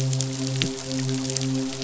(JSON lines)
{"label": "biophony, midshipman", "recorder": "SoundTrap 500"}